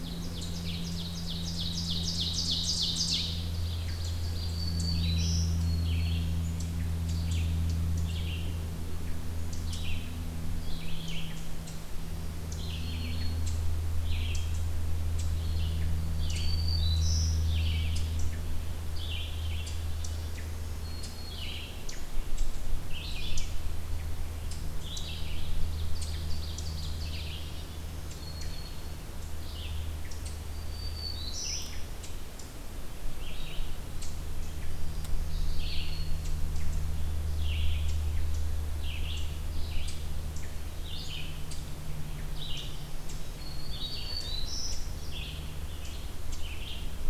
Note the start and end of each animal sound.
0.0s-22.6s: Ovenbird (Seiurus aurocapilla)
4.1s-5.7s: Black-throated Green Warbler (Setophaga virens)
5.7s-33.6s: Red-eyed Vireo (Vireo olivaceus)
11.7s-13.5s: Black-throated Green Warbler (Setophaga virens)
16.1s-17.5s: Black-throated Green Warbler (Setophaga virens)
20.0s-21.5s: Black-throated Green Warbler (Setophaga virens)
23.1s-47.1s: Ovenbird (Seiurus aurocapilla)
27.3s-28.9s: Black-throated Green Warbler (Setophaga virens)
30.3s-31.9s: Black-throated Green Warbler (Setophaga virens)
34.6s-36.4s: Black-throated Green Warbler (Setophaga virens)
35.4s-47.1s: Red-eyed Vireo (Vireo olivaceus)
43.4s-44.9s: Black-throated Green Warbler (Setophaga virens)

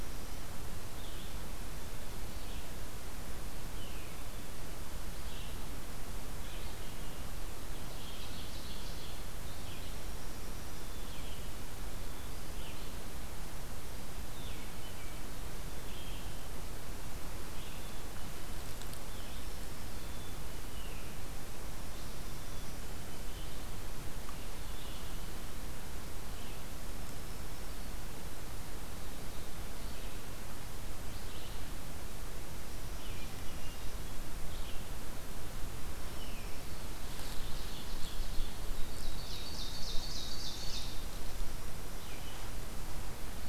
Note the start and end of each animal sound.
0.8s-43.5s: Red-eyed Vireo (Vireo olivaceus)
7.8s-9.3s: Ovenbird (Seiurus aurocapilla)
18.9s-20.3s: Black-throated Green Warbler (Setophaga virens)
22.3s-23.4s: Black-capped Chickadee (Poecile atricapillus)
26.8s-28.0s: Black-throated Green Warbler (Setophaga virens)
36.8s-38.5s: Ovenbird (Seiurus aurocapilla)
38.7s-41.0s: Ovenbird (Seiurus aurocapilla)

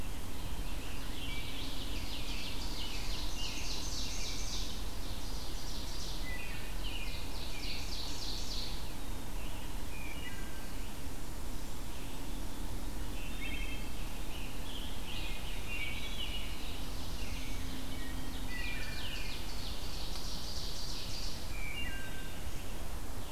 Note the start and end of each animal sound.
0.0s-3.0s: Rose-breasted Grosbeak (Pheucticus ludovicianus)
0.5s-8.9s: Ovenbird (Seiurus aurocapilla)
2.2s-4.4s: American Robin (Turdus migratorius)
4.9s-23.3s: Red-eyed Vireo (Vireo olivaceus)
6.2s-8.1s: American Robin (Turdus migratorius)
9.7s-10.7s: Wood Thrush (Hylocichla mustelina)
13.0s-14.1s: Wood Thrush (Hylocichla mustelina)
13.9s-16.2s: Scarlet Tanager (Piranga olivacea)
15.1s-17.6s: American Robin (Turdus migratorius)
16.2s-17.7s: Black-throated Blue Warbler (Setophaga caerulescens)
17.8s-19.1s: Wood Thrush (Hylocichla mustelina)
17.9s-21.6s: Ovenbird (Seiurus aurocapilla)
21.5s-22.5s: Wood Thrush (Hylocichla mustelina)
22.0s-22.8s: Black-capped Chickadee (Poecile atricapillus)

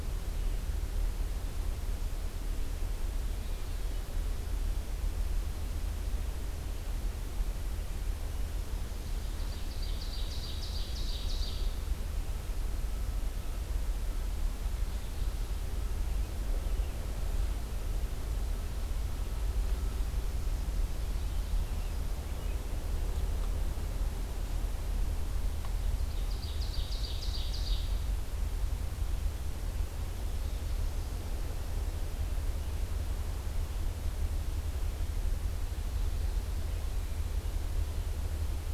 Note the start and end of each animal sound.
9.0s-11.7s: Ovenbird (Seiurus aurocapilla)
20.8s-22.6s: American Robin (Turdus migratorius)
25.8s-28.2s: Ovenbird (Seiurus aurocapilla)

